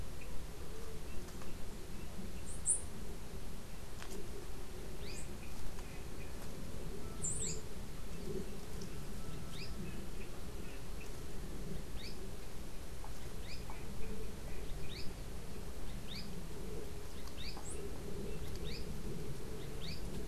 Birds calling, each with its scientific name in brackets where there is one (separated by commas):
Azara's Spinetail (Synallaxis azarae), Chestnut-capped Brushfinch (Arremon brunneinucha)